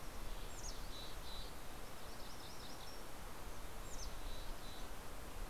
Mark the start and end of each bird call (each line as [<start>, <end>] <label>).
[0.00, 5.50] Mountain Chickadee (Poecile gambeli)
[1.23, 3.83] MacGillivray's Warbler (Geothlypis tolmiei)